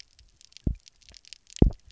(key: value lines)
label: biophony, double pulse
recorder: SoundTrap 300